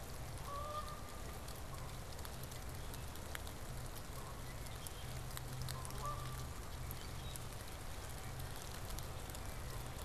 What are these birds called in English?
Canada Goose, Red-winged Blackbird, Common Grackle